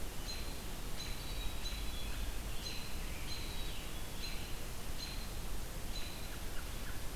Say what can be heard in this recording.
American Robin, Scarlet Tanager, Black-capped Chickadee